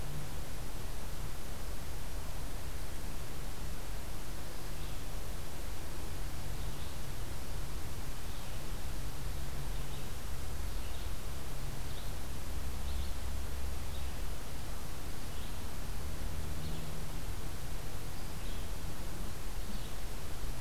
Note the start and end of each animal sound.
0.0s-8.8s: Red-eyed Vireo (Vireo olivaceus)
9.6s-20.6s: Red-eyed Vireo (Vireo olivaceus)

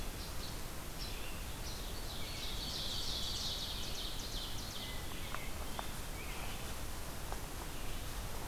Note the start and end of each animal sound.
0.0s-0.5s: Hermit Thrush (Catharus guttatus)
0.0s-8.1s: Red-eyed Vireo (Vireo olivaceus)
0.9s-1.9s: Least Flycatcher (Empidonax minimus)
2.0s-5.1s: Ovenbird (Seiurus aurocapilla)
4.7s-6.0s: Hermit Thrush (Catharus guttatus)

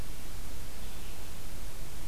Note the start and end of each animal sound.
0.0s-2.1s: Red-eyed Vireo (Vireo olivaceus)

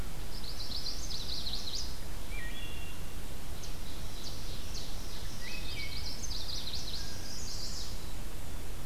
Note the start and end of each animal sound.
0.1s-2.2s: Chestnut-sided Warbler (Setophaga pensylvanica)
2.1s-3.0s: Wood Thrush (Hylocichla mustelina)
3.5s-5.9s: Ovenbird (Seiurus aurocapilla)
5.2s-6.2s: Wood Thrush (Hylocichla mustelina)
5.4s-8.0s: Chestnut-sided Warbler (Setophaga pensylvanica)
6.9s-7.5s: Blue Jay (Cyanocitta cristata)
7.7s-8.7s: Black-capped Chickadee (Poecile atricapillus)
7.7s-8.7s: Black-and-white Warbler (Mniotilta varia)

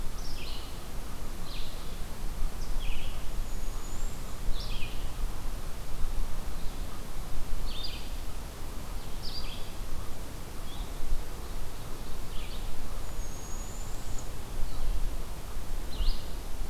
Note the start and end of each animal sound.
0.0s-16.7s: Eastern Chipmunk (Tamias striatus)
0.0s-16.7s: Red-eyed Vireo (Vireo olivaceus)
3.1s-4.5s: Northern Parula (Setophaga americana)
11.2s-12.7s: Ovenbird (Seiurus aurocapilla)
12.9s-14.5s: Northern Parula (Setophaga americana)

